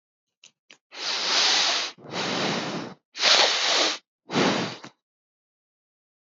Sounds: Sniff